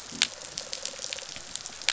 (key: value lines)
label: biophony, rattle response
recorder: SoundTrap 500

label: biophony
recorder: SoundTrap 500